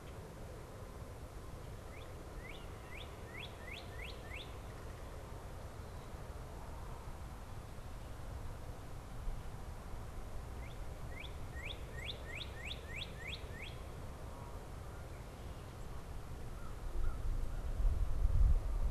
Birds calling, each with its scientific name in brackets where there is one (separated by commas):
American Crow (Corvus brachyrhynchos), Northern Cardinal (Cardinalis cardinalis)